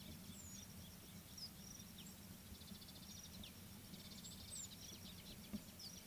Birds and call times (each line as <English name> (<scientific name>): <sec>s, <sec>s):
Mariqua Sunbird (Cinnyris mariquensis): 2.8s